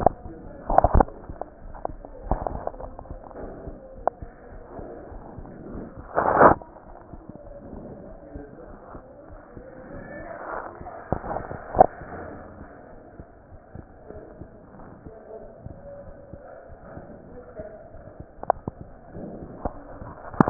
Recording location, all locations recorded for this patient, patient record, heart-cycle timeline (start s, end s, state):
aortic valve (AV)
aortic valve (AV)+pulmonary valve (PV)+tricuspid valve (TV)+mitral valve (MV)
#Age: Child
#Sex: Female
#Height: 118.0 cm
#Weight: 20.6 kg
#Pregnancy status: False
#Murmur: Absent
#Murmur locations: nan
#Most audible location: nan
#Systolic murmur timing: nan
#Systolic murmur shape: nan
#Systolic murmur grading: nan
#Systolic murmur pitch: nan
#Systolic murmur quality: nan
#Diastolic murmur timing: nan
#Diastolic murmur shape: nan
#Diastolic murmur grading: nan
#Diastolic murmur pitch: nan
#Diastolic murmur quality: nan
#Outcome: Abnormal
#Campaign: 2015 screening campaign
0.00	3.20	unannotated
3.20	3.40	diastole
3.40	3.52	S1
3.52	3.62	systole
3.62	3.74	S2
3.74	3.95	diastole
3.95	4.06	S1
4.06	4.20	systole
4.20	4.30	S2
4.30	4.50	diastole
4.50	4.64	S1
4.64	4.74	systole
4.74	4.86	S2
4.86	5.10	diastole
5.10	5.24	S1
5.24	5.34	systole
5.34	5.46	S2
5.46	5.72	diastole
5.72	5.86	S1
5.86	5.98	systole
5.98	6.10	S2
6.10	6.84	unannotated
6.84	6.97	S1
6.97	7.12	systole
7.12	7.20	S2
7.20	7.46	diastole
7.46	7.56	S1
7.56	7.69	systole
7.69	7.80	S2
7.80	8.09	diastole
8.09	8.18	S1
8.18	8.33	systole
8.33	8.42	S2
8.42	8.67	diastole
8.67	8.75	S1
8.75	8.93	systole
8.93	9.01	S2
9.01	9.30	diastole
9.30	9.42	S1
9.42	9.56	systole
9.56	9.64	S2
9.64	9.92	diastole
9.92	20.50	unannotated